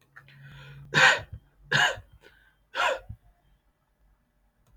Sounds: Cough